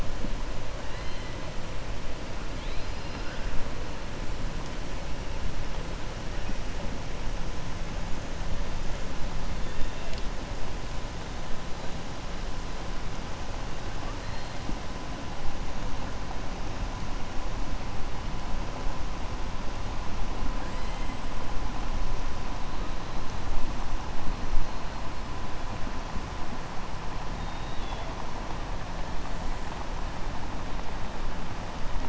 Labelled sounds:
0.8	1.3	killer whale, southern resident, 1.7 to 4.2 kHz
27.4	28.1	killer whale, southern resident, 2.7 to 4.0 kHz

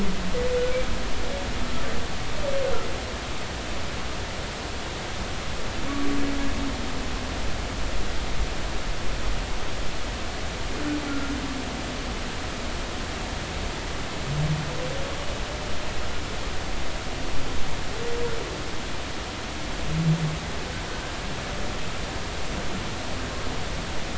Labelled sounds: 11.1	11.3	humpback whale, 1.3 to 1.4 kHz

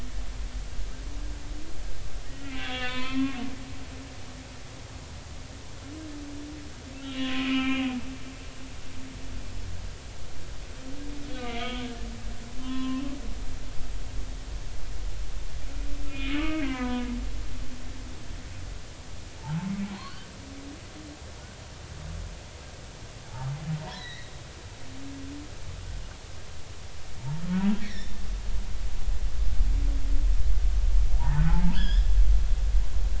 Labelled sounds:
2.2	3.5	humpback whale, 0.96 to 3.6 kHz
7.0	7.9	humpback whale, 0.99 to 3.1 kHz
11.4	11.9	humpback whale, 1.2 to 3.4 kHz
12.6	13.0	humpback whale, 0.96 to 2.9 kHz
16.1	17.1	humpback whale, 0.93 to 2.6 kHz
17.4	18.0	humpback whale, 1.4 to 1.7 kHz
19.4	20.2	humpback whale, 0.80 to 4.5 kHz
23.3	24.3	humpback whale, 0.80 to 4.1 kHz
27.8	28.2	humpback whale, 1.7 to 5.8 kHz
31.2	32.1	humpback whale, 0.80 to 5.3 kHz

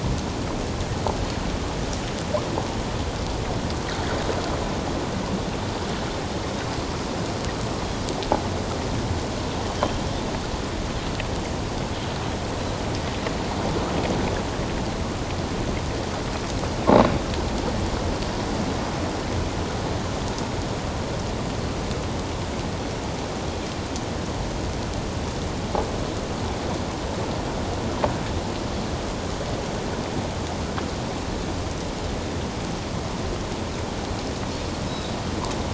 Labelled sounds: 9.8	10.1	Pacific white-sided dolphin, 3.0 to 3.3 kHz
34.9	35.1	Pacific white-sided dolphin, 3.6 to 4.0 kHz

